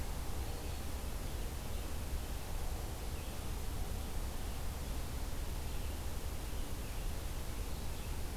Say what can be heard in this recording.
Hairy Woodpecker, Black-throated Green Warbler, Red-eyed Vireo